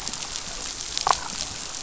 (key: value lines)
label: biophony, damselfish
recorder: SoundTrap 500